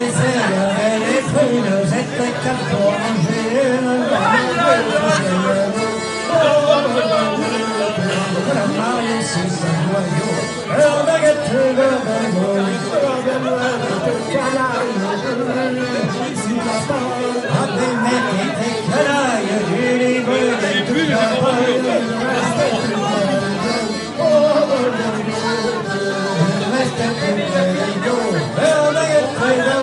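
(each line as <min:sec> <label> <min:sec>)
0:00.0 A man is singing a happy song. 0:29.8
0:00.0 People are talking happily with each other. 0:29.8
0:00.0 Someone is playing the accordion. 0:29.8
0:03.9 A man is shouting. 0:05.6
0:06.2 A man is shouting. 0:07.5
0:13.4 A woman laughs. 0:14.3
0:17.3 A woman laughs. 0:18.0
0:18.8 A man is shouting. 0:22.3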